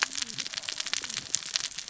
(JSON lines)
{"label": "biophony, cascading saw", "recorder": "SoundTrap 600 or HydroMoth"}